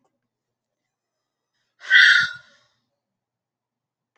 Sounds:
Sigh